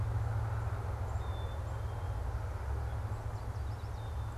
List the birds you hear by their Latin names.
Poecile atricapillus, Setophaga petechia